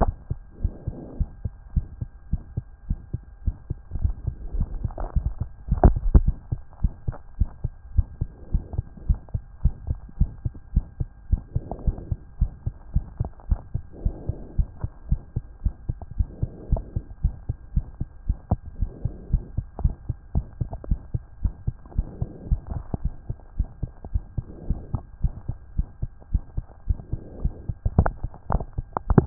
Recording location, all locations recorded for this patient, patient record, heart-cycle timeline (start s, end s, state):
aortic valve (AV)
aortic valve (AV)+pulmonary valve (PV)+pulmonary valve (PV)+tricuspid valve (TV)+tricuspid valve (TV)+mitral valve (MV)
#Age: Child
#Sex: Male
#Height: 130.0 cm
#Weight: 25.8 kg
#Pregnancy status: False
#Murmur: Present
#Murmur locations: aortic valve (AV)+pulmonary valve (PV)+tricuspid valve (TV)
#Most audible location: pulmonary valve (PV)
#Systolic murmur timing: Early-systolic
#Systolic murmur shape: Decrescendo
#Systolic murmur grading: I/VI
#Systolic murmur pitch: Low
#Systolic murmur quality: Blowing
#Diastolic murmur timing: nan
#Diastolic murmur shape: nan
#Diastolic murmur grading: nan
#Diastolic murmur pitch: nan
#Diastolic murmur quality: nan
#Outcome: Abnormal
#Campaign: 2014 screening campaign
0.00	0.16	S1
0.16	0.30	systole
0.30	0.42	S2
0.42	0.62	diastole
0.62	0.72	S1
0.72	0.86	systole
0.86	0.96	S2
0.96	1.16	diastole
1.16	1.28	S1
1.28	1.44	systole
1.44	1.54	S2
1.54	1.72	diastole
1.72	1.86	S1
1.86	2.00	systole
2.00	2.10	S2
2.10	2.28	diastole
2.28	2.42	S1
2.42	2.56	systole
2.56	2.66	S2
2.66	2.86	diastole
2.86	2.98	S1
2.98	3.12	systole
3.12	3.22	S2
3.22	3.42	diastole
3.42	3.56	S1
3.56	3.70	systole
3.70	3.78	S2
3.78	3.96	diastole
3.96	4.14	S1
4.14	4.26	systole
4.26	4.36	S2
4.36	4.52	diastole
4.52	4.68	S1
4.68	4.82	systole
4.82	4.96	S2
4.96	5.16	diastole
5.16	5.34	S1
5.34	5.40	systole
5.40	5.50	S2
5.50	5.70	diastole
5.70	5.80	S1
5.80	5.84	systole
5.84	6.00	S2
6.00	6.14	diastole
6.14	6.32	S1
6.32	6.50	systole
6.50	6.60	S2
6.60	6.80	diastole
6.80	6.94	S1
6.94	7.06	systole
7.06	7.16	S2
7.16	7.36	diastole
7.36	7.50	S1
7.50	7.64	systole
7.64	7.74	S2
7.74	7.94	diastole
7.94	8.08	S1
8.08	8.20	systole
8.20	8.30	S2
8.30	8.50	diastole
8.50	8.64	S1
8.64	8.78	systole
8.78	8.88	S2
8.88	9.06	diastole
9.06	9.20	S1
9.20	9.34	systole
9.34	9.42	S2
9.42	9.60	diastole
9.60	9.74	S1
9.74	9.88	systole
9.88	10.00	S2
10.00	10.16	diastole
10.16	10.30	S1
10.30	10.44	systole
10.44	10.54	S2
10.54	10.72	diastole
10.72	10.86	S1
10.86	11.00	systole
11.00	11.10	S2
11.10	11.28	diastole
11.28	11.42	S1
11.42	11.54	systole
11.54	11.64	S2
11.64	11.84	diastole
11.84	11.98	S1
11.98	12.10	systole
12.10	12.18	S2
12.18	12.38	diastole
12.38	12.52	S1
12.52	12.66	systole
12.66	12.74	S2
12.74	12.92	diastole
12.92	13.06	S1
13.06	13.18	systole
13.18	13.30	S2
13.30	13.48	diastole
13.48	13.62	S1
13.62	13.74	systole
13.74	13.84	S2
13.84	14.02	diastole
14.02	14.16	S1
14.16	14.30	systole
14.30	14.38	S2
14.38	14.56	diastole
14.56	14.68	S1
14.68	14.82	systole
14.82	14.90	S2
14.90	15.08	diastole
15.08	15.22	S1
15.22	15.36	systole
15.36	15.44	S2
15.44	15.62	diastole
15.62	15.76	S1
15.76	15.90	systole
15.90	16.00	S2
16.00	16.16	diastole
16.16	16.30	S1
16.30	16.42	systole
16.42	16.50	S2
16.50	16.68	diastole
16.68	16.84	S1
16.84	16.96	systole
16.96	17.04	S2
17.04	17.22	diastole
17.22	17.36	S1
17.36	17.50	systole
17.50	17.56	S2
17.56	17.74	diastole
17.74	17.86	S1
17.86	18.00	systole
18.00	18.08	S2
18.08	18.26	diastole
18.26	18.36	S1
18.36	18.48	systole
18.48	18.60	S2
18.60	18.78	diastole
18.78	18.90	S1
18.90	19.02	systole
19.02	19.12	S2
19.12	19.30	diastole
19.30	19.44	S1
19.44	19.56	systole
19.56	19.66	S2
19.66	19.82	diastole
19.82	19.96	S1
19.96	20.08	systole
20.08	20.16	S2
20.16	20.34	diastole
20.34	20.48	S1
20.48	20.62	systole
20.62	20.72	S2
20.72	20.88	diastole
20.88	21.02	S1
21.02	21.14	systole
21.14	21.24	S2
21.24	21.42	diastole
21.42	21.52	S1
21.52	21.68	systole
21.68	21.78	S2
21.78	21.96	diastole
21.96	22.06	S1
22.06	22.20	systole
22.20	22.30	S2
22.30	22.48	diastole
22.48	22.60	S1
22.60	22.72	systole
22.72	22.84	S2
22.84	23.02	diastole
23.02	23.12	S1
23.12	23.28	systole
23.28	23.36	S2
23.36	23.56	diastole
23.56	23.68	S1
23.68	23.82	systole
23.82	23.90	S2
23.90	24.12	diastole
24.12	24.22	S1
24.22	24.36	systole
24.36	24.46	S2
24.46	24.66	diastole
24.66	24.78	S1
24.78	24.92	systole
24.92	25.04	S2
25.04	25.22	diastole
25.22	25.36	S1
25.36	25.50	systole
25.50	25.58	S2
25.58	25.76	diastole
25.76	25.86	S1
25.86	26.02	systole
26.02	26.10	S2
26.10	26.32	diastole
26.32	26.46	S1
26.46	26.58	systole
26.58	26.66	S2
26.66	26.88	diastole
26.88	26.98	S1
26.98	27.10	systole
27.10	27.20	S2
27.20	27.40	diastole
27.40	27.52	S1
27.52	27.68	systole
27.68	27.76	S2
27.76	27.96	diastole
27.96	28.14	S1
28.14	28.22	systole
28.22	28.32	S2
28.32	28.50	diastole
28.50	28.66	S1
28.66	28.78	systole
28.78	28.86	S2
28.86	29.02	diastole
29.02	29.08	S1
29.08	29.18	systole
29.18	29.26	S2